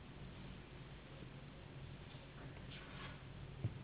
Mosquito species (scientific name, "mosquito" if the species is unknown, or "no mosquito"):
Anopheles gambiae s.s.